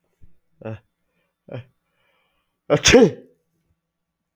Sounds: Sneeze